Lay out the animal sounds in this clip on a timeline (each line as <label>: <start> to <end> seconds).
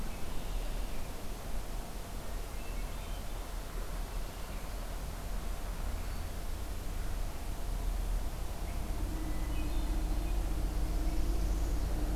Red-winged Blackbird (Agelaius phoeniceus): 0.2 to 0.9 seconds
Hermit Thrush (Catharus guttatus): 2.5 to 3.2 seconds
Hermit Thrush (Catharus guttatus): 9.3 to 10.4 seconds
Northern Parula (Setophaga americana): 10.7 to 11.9 seconds